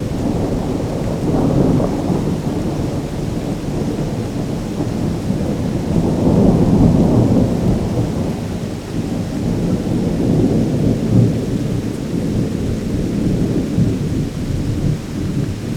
What is gently booming in the background?
thunder